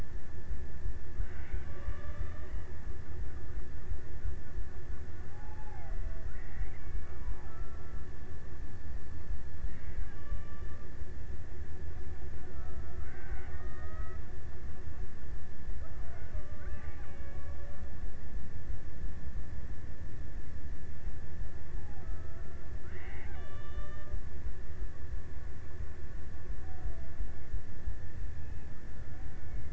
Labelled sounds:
1.0	3.1	killer whale, Bigg's (transient), 0.36 to 3.4 kHz
5.2	8.6	killer whale, Bigg's (transient), 0.43 to 3.0 kHz
9.0	11.7	killer whale, Bigg's (transient), 0.45 to 4.6 kHz
12.7	14.4	killer whale, Bigg's (transient), 0.28 to 3.7 kHz
15.4	18.4	killer whale, Bigg's (transient), 0.40 to 3.4 kHz
21.3	24.9	killer whale, Bigg's (transient), 0.39 to 3.9 kHz

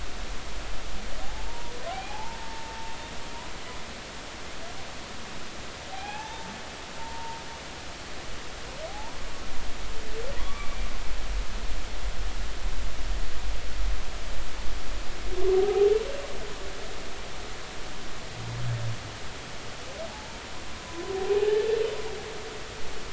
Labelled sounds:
1.2	2.8	humpback whale, 0.80 to 2.5 kHz
5.9	6.5	humpback whale, 0.80 to 2.7 kHz
7.0	7.4	humpback whale, 0.86 to 0.96 kHz
8.9	9.2	humpback whale, 0.80 to 0.99 kHz
10.3	10.9	humpback whale, 0.96 to 2.4 kHz
15.5	15.9	humpback whale, 0.80 to 0.86 kHz
21.2	21.6	humpback whale, 0.80 to 0.90 kHz

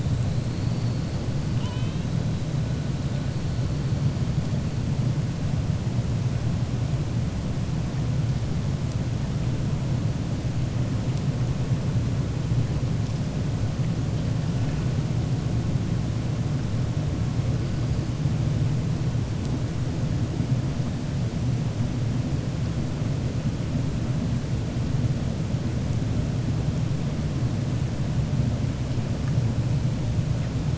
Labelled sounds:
1.5	2.1	killer whale, 0.95 to 4.1 kHz

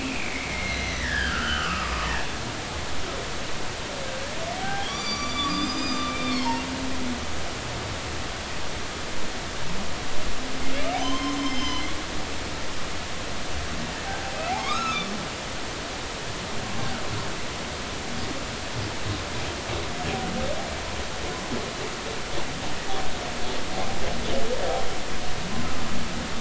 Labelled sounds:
0.0	2.1	humpback whale, 1.0 to 4.3 kHz
4.6	6.6	humpback whale, 0.80 to 7.1 kHz
11.0	11.9	humpback whale, 0.96 to 6.4 kHz
14.6	15.1	humpback whale, 1.0 to 4.1 kHz
16.8	17.0	humpback whale, 1.3 to 1.6 kHz

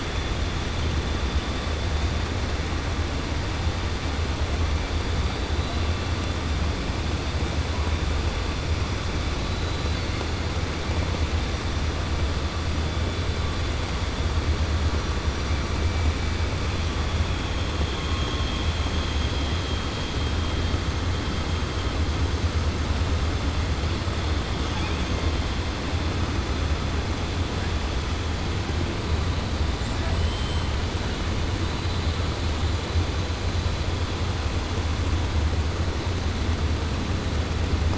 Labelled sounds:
9.5	10.1	killer whale, 3.5 to 4.7 kHz
17.9	18.7	killer whale, 2.4 to 3.9 kHz
24.6	25.1	killer whale, 0.85 to 3.7 kHz
29.7	30.7	killer whale, 7.1 to 8.0 kHz

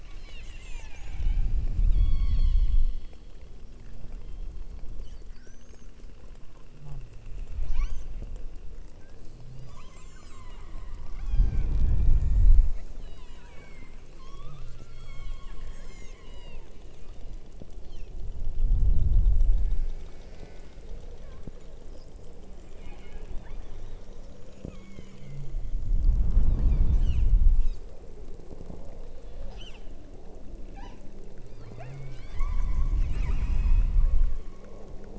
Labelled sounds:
0.0	1.6	killer whale, southern Alaska resident, 0.68 to 8.0 kHz
1.9	3.5	killer whale, southern Alaska resident, 0.80 to 8.0 kHz
4.0	5.1	killer whale, southern Alaska resident, 1.8 to 6.9 kHz
7.6	8.2	killer whale, southern Alaska resident, 0.59 to 8.0 kHz
9.5	11.9	killer whale, southern Alaska resident, 0.59 to 8.0 kHz
12.1	16.8	killer whale, southern Alaska resident, 0.73 to 8.0 kHz
22.7	23.7	killer whale, southern Alaska resident, 1.3 to 4.5 kHz
24.6	25.2	killer whale, southern Alaska resident, 0.84 to 5.8 kHz
26.5	27.3	killer whale, southern Alaska resident, 1.4 to 8.0 kHz
29.4	29.9	killer whale, southern Alaska resident, 1.0 to 8.0 kHz
30.6	31.1	killer whale, southern Alaska resident, 0.73 to 7.1 kHz
31.4	34.9	killer whale, southern Alaska resident, 0.75 to 8.0 kHz

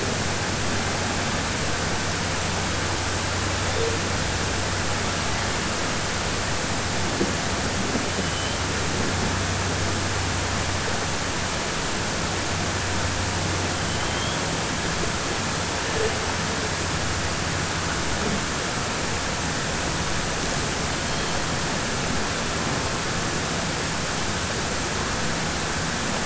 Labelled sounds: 13.9	14.4	killer whale, southern resident, 3.0 to 4.3 kHz

